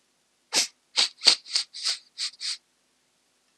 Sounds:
Sniff